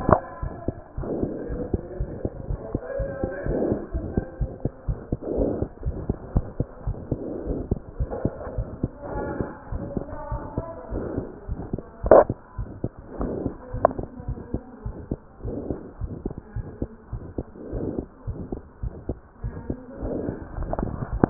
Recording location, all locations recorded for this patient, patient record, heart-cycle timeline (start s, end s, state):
pulmonary valve (PV)
aortic valve (AV)+pulmonary valve (PV)+tricuspid valve (TV)+mitral valve (MV)
#Age: Child
#Sex: Male
#Height: 87.0 cm
#Weight: 11.2 kg
#Pregnancy status: False
#Murmur: Present
#Murmur locations: aortic valve (AV)+mitral valve (MV)+pulmonary valve (PV)+tricuspid valve (TV)
#Most audible location: pulmonary valve (PV)
#Systolic murmur timing: Early-systolic
#Systolic murmur shape: Plateau
#Systolic murmur grading: II/VI
#Systolic murmur pitch: Low
#Systolic murmur quality: Harsh
#Diastolic murmur timing: nan
#Diastolic murmur shape: nan
#Diastolic murmur grading: nan
#Diastolic murmur pitch: nan
#Diastolic murmur quality: nan
#Outcome: Abnormal
#Campaign: 2015 screening campaign
0.00	5.84	unannotated
5.84	5.97	S1
5.97	6.08	systole
6.08	6.18	S2
6.18	6.36	diastole
6.36	6.50	S1
6.50	6.58	systole
6.58	6.68	S2
6.68	6.86	diastole
6.86	6.98	S1
6.98	7.10	systole
7.10	7.22	S2
7.22	7.44	diastole
7.44	7.62	S1
7.62	7.70	systole
7.70	7.80	S2
7.80	7.96	diastole
7.96	8.10	S1
8.10	8.22	systole
8.22	8.32	S2
8.32	8.52	diastole
8.52	8.68	S1
8.68	8.80	systole
8.80	8.92	S2
8.92	9.12	diastole
9.12	9.28	S1
9.28	9.36	systole
9.36	9.48	S2
9.48	9.70	diastole
9.70	9.84	S1
9.84	9.94	systole
9.94	10.06	S2
10.06	10.30	diastole
10.30	10.44	S1
10.44	10.56	systole
10.56	10.68	S2
10.68	10.92	diastole
10.92	11.08	S1
11.08	11.16	systole
11.16	11.30	S2
11.30	11.48	diastole
11.48	11.60	S1
11.60	11.72	systole
11.72	11.84	S2
11.84	12.03	diastole
12.03	12.15	S1
12.15	12.26	systole
12.26	12.38	S2
12.38	12.58	diastole
12.58	12.70	S1
12.70	12.82	systole
12.82	12.94	S2
12.94	13.18	diastole
13.18	13.32	S1
13.32	13.42	systole
13.42	13.56	S2
13.56	13.74	diastole
13.74	13.84	S1
13.84	13.97	systole
13.97	14.08	S2
14.08	14.26	diastole
14.26	14.38	S1
14.38	14.50	systole
14.50	14.62	S2
14.62	14.84	diastole
14.84	14.96	S1
14.96	15.08	systole
15.08	15.18	S2
15.18	15.42	diastole
15.42	15.56	S1
15.56	15.68	systole
15.68	15.80	S2
15.80	16.00	diastole
16.00	16.12	S1
16.12	16.24	systole
16.24	16.38	S2
16.38	16.56	diastole
16.56	16.68	S1
16.68	16.78	systole
16.78	16.90	S2
16.90	17.11	diastole
17.11	17.22	S1
17.22	17.36	systole
17.36	17.46	S2
17.46	17.70	diastole
17.70	17.88	S1
17.88	17.96	systole
17.96	18.08	S2
18.08	18.26	diastole
18.26	18.38	S1
18.38	18.50	systole
18.50	18.64	S2
18.64	18.81	diastole
18.81	18.94	S1
18.94	19.06	systole
19.06	19.18	S2
19.18	19.42	diastole
19.42	19.56	S1
19.56	19.68	systole
19.68	19.78	S2
19.78	19.99	diastole
19.99	21.30	unannotated